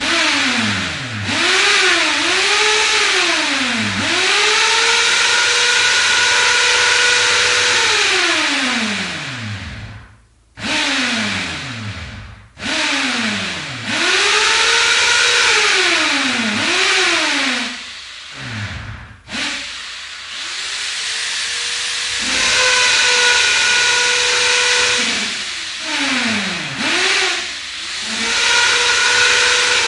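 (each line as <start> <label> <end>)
0.0 Drilling sounds start normally and increase in volume, repeatedly starting and stopping. 10.0
20.3 The sound changes to a deeper tone. 22.2
22.2 The noise intensifies and deepens. 25.5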